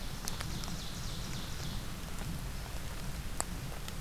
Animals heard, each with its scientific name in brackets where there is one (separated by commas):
Ovenbird (Seiurus aurocapilla)